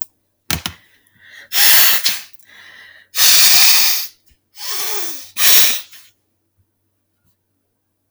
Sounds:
Sniff